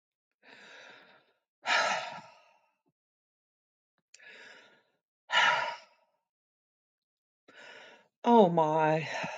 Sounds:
Sigh